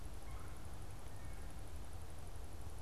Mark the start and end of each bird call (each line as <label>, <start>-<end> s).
Red-bellied Woodpecker (Melanerpes carolinus), 0.0-1.0 s